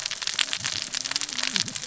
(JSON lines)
{"label": "biophony, cascading saw", "recorder": "SoundTrap 600 or HydroMoth"}